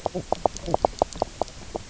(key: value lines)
label: biophony, knock croak
recorder: SoundTrap 300